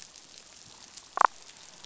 {"label": "biophony, damselfish", "recorder": "SoundTrap 500"}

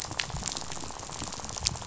{"label": "biophony, rattle", "recorder": "SoundTrap 500"}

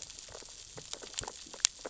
{"label": "biophony, sea urchins (Echinidae)", "recorder": "SoundTrap 600 or HydroMoth"}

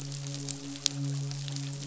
{"label": "biophony, midshipman", "recorder": "SoundTrap 500"}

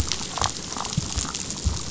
{"label": "biophony, damselfish", "recorder": "SoundTrap 500"}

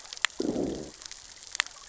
{"label": "biophony, growl", "recorder": "SoundTrap 600 or HydroMoth"}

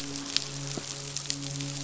{"label": "biophony, midshipman", "recorder": "SoundTrap 500"}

